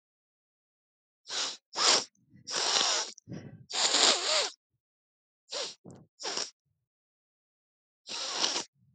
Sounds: Sniff